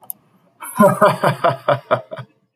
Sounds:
Laughter